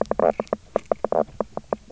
{"label": "biophony, knock croak", "recorder": "SoundTrap 300"}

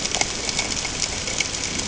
{"label": "ambient", "recorder": "HydroMoth"}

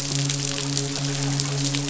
{"label": "biophony, midshipman", "recorder": "SoundTrap 500"}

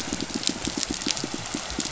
{"label": "biophony, pulse", "recorder": "SoundTrap 500"}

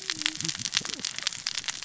{"label": "biophony, cascading saw", "recorder": "SoundTrap 600 or HydroMoth"}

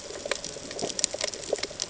{"label": "ambient", "recorder": "HydroMoth"}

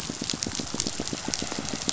{"label": "biophony, pulse", "recorder": "SoundTrap 500"}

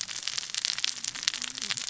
{"label": "biophony, cascading saw", "recorder": "SoundTrap 600 or HydroMoth"}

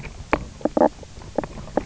{"label": "biophony, knock croak", "recorder": "SoundTrap 300"}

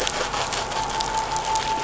{"label": "anthrophony, boat engine", "recorder": "SoundTrap 500"}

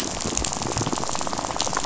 {"label": "biophony, rattle", "recorder": "SoundTrap 500"}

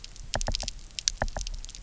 {"label": "biophony, knock", "recorder": "SoundTrap 300"}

